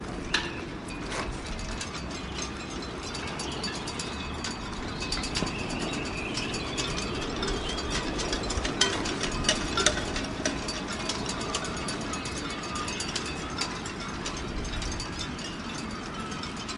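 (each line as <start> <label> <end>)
0.0 A soft wind blows constantly. 16.8
0.0 Birds singing quietly in the distance. 16.8
0.2 A short clanging sound. 0.7
1.9 Quick, repeated metallic rattling of sailboat masts. 16.8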